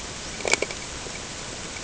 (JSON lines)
{"label": "ambient", "recorder": "HydroMoth"}